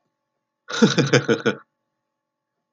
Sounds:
Laughter